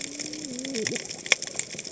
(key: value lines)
label: biophony, cascading saw
recorder: HydroMoth